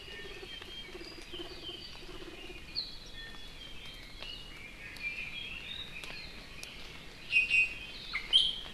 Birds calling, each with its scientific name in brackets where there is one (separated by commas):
Red-billed Leiothrix (Leiothrix lutea), Iiwi (Drepanis coccinea)